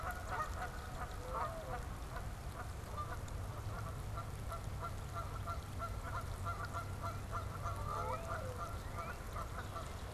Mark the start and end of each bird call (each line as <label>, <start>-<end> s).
Canada Goose (Branta canadensis), 0.0-10.1 s
Mourning Dove (Zenaida macroura), 0.9-1.8 s
Mourning Dove (Zenaida macroura), 7.8-8.7 s
Northern Cardinal (Cardinalis cardinalis), 7.8-10.1 s